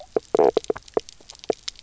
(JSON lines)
{"label": "biophony, knock croak", "recorder": "SoundTrap 300"}